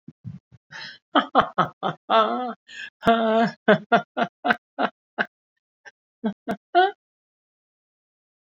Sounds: Laughter